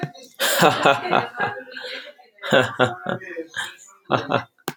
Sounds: Laughter